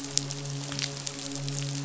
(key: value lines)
label: biophony, midshipman
recorder: SoundTrap 500